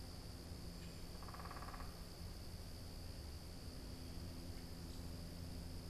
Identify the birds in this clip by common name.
Downy Woodpecker